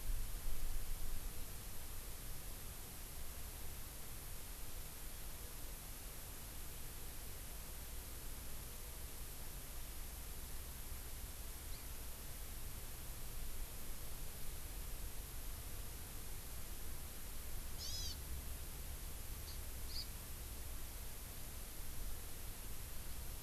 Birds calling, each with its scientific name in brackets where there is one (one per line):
Hawaii Amakihi (Chlorodrepanis virens)